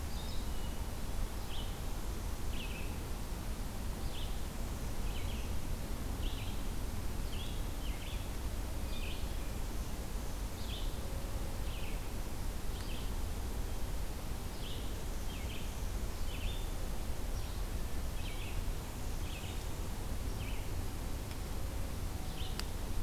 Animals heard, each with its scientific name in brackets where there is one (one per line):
Red-eyed Vireo (Vireo olivaceus)
Hermit Thrush (Catharus guttatus)